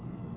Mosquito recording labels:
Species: Anopheles merus; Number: one; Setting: insect culture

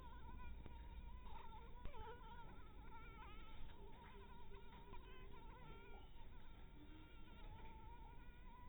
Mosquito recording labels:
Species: mosquito; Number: one; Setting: cup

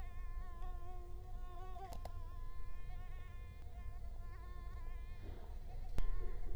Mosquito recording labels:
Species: Culex quinquefasciatus; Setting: cup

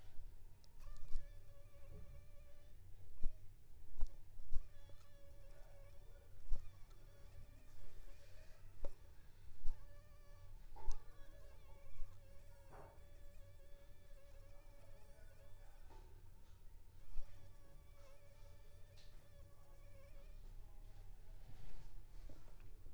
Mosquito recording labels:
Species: Anopheles funestus s.s.; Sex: female; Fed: unfed; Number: one; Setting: cup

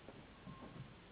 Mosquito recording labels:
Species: Anopheles gambiae s.s.; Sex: female; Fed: unfed; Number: one; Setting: insect culture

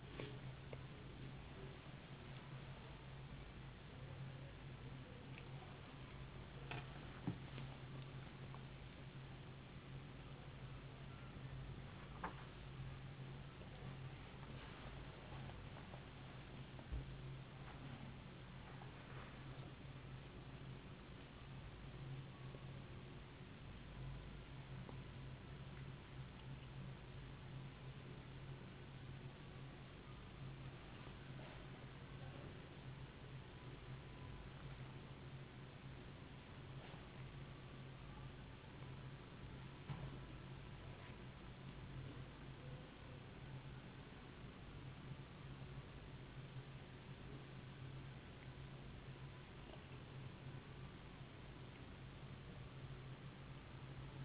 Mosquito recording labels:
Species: no mosquito; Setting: insect culture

